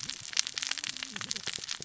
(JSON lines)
{"label": "biophony, cascading saw", "recorder": "SoundTrap 600 or HydroMoth"}